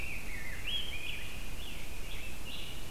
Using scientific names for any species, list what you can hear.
Turdus migratorius, Pheucticus ludovicianus, Piranga olivacea